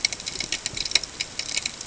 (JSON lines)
{"label": "ambient", "recorder": "HydroMoth"}